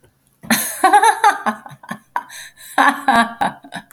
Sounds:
Laughter